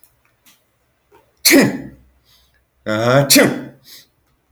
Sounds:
Sniff